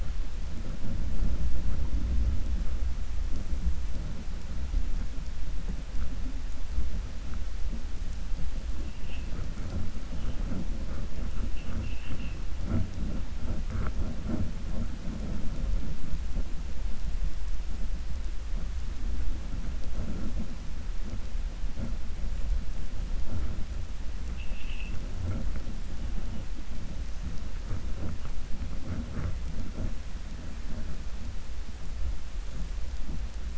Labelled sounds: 11.4	12.4	vessel noise, 1.1 to 3.2 kHz

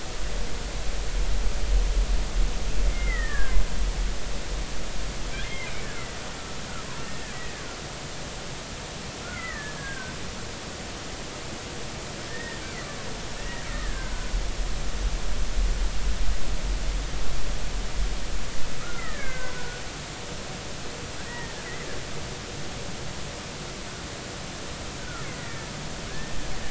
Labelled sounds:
2.9	3.6	killer whale, Bigg's (transient), 1.2 to 2.2 kHz
5.4	5.7	killer whale, Bigg's (transient), 2.0 to 2.2 kHz
9.2	10.1	killer whale, Bigg's (transient), 1.1 to 2.2 kHz
12.3	12.6	killer whale, Bigg's (transient), 1.7 to 1.9 kHz
13.7	14.1	killer whale, Bigg's (transient), 1.5 to 2.0 kHz
18.8	19.8	killer whale, Bigg's (transient), 1.2 to 2.3 kHz
22.3	22.6	killer whale, Bigg's (transient), 1.8 to 2.0 kHz
25.0	25.7	killer whale, Bigg's (transient), 1.2 to 2.2 kHz
26.1	26.4	killer whale, Bigg's (transient), 1.6 to 1.9 kHz

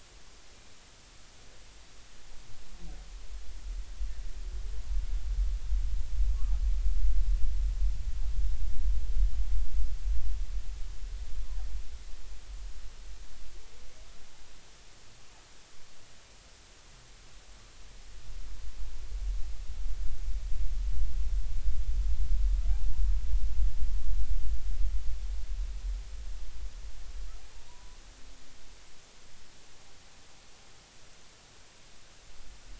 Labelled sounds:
27.7	28.0	humpback whale, 0.90 to 1.1 kHz

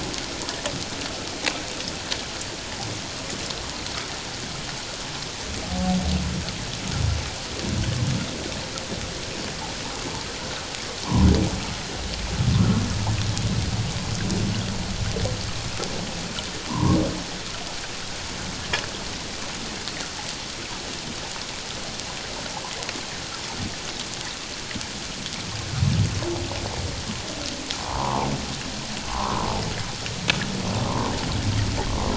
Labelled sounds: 16.7	17.0	humpback whale, 0.88 to 1.2 kHz
27.8	28.3	humpback whale, 0.78 to 1.2 kHz
29.1	29.5	humpback whale, 0.78 to 1.3 kHz

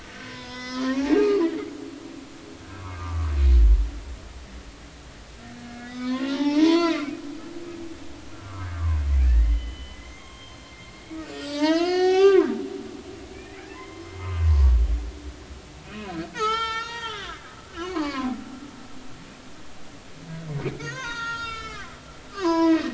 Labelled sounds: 0.0	1.5	humpback whale, 0.93 to 6.6 kHz
2.8	3.3	humpback whale, 0.90 to 1.3 kHz
5.6	7.1	humpback whale, 0.80 to 5.9 kHz
8.7	12.5	humpback whale, 0.80 to 7.9 kHz
13.3	14.3	humpback whale, 0.96 to 2.5 kHz
15.9	18.3	humpback whale, 0.80 to 6.8 kHz
20.7	22.9	humpback whale, 0.86 to 7.0 kHz

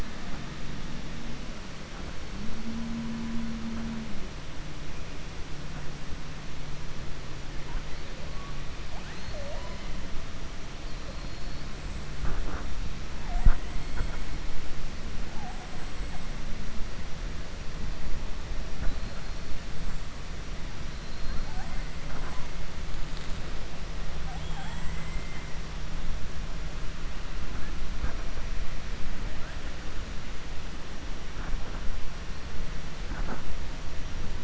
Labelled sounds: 24.2	25.5	killer whale, 0.71 to 3.4 kHz

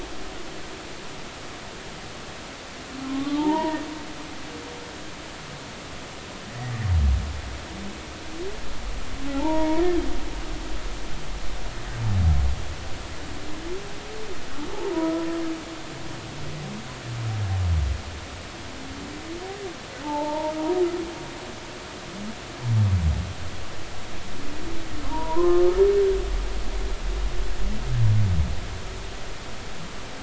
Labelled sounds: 3.0	3.8	humpback whale, 0.80 to 2.0 kHz
9.3	9.8	humpback whale, 0.80 to 1.0 kHz
20.0	20.6	humpback whale, 0.80 to 1.0 kHz
25.1	25.6	humpback whale, 0.86 to 1.1 kHz

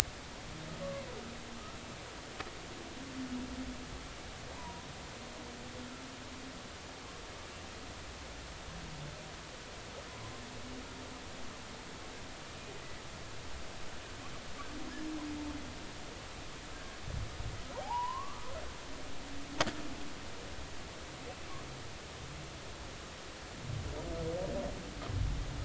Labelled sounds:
4.5	4.9	humpback whale, 0.86 to 1.1 kHz
16.7	17.0	humpback whale, 1.6 to 1.7 kHz
17.8	18.5	humpback whale, 0.80 to 3.0 kHz

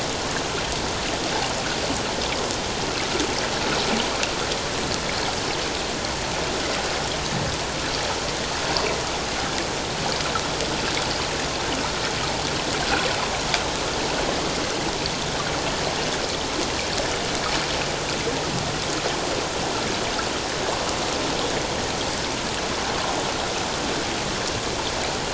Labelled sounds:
12.8	13.1	water noise, 1.3 to 1.6 kHz

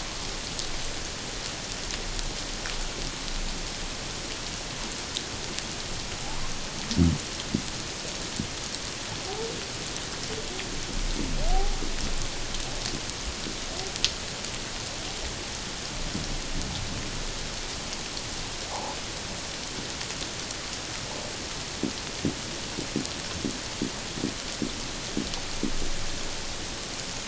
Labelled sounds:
11.5	11.8	humpback whale, 0.78 to 0.88 kHz
18.7	19.0	humpback whale, 0.78 to 1.1 kHz

